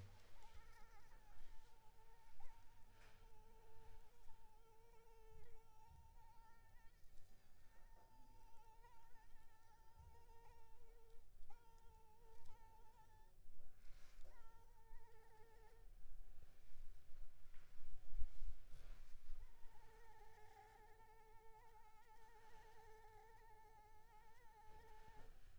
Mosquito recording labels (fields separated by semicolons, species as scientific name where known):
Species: Anopheles arabiensis; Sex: female; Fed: unfed; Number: one; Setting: cup